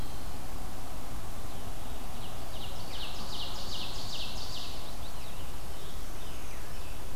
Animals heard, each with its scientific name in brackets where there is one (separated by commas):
Brown Creeper (Certhia americana), Blue-headed Vireo (Vireo solitarius), Chestnut-sided Warbler (Setophaga pensylvanica), Scarlet Tanager (Piranga olivacea), Ovenbird (Seiurus aurocapilla)